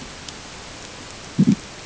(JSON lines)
{"label": "ambient", "recorder": "HydroMoth"}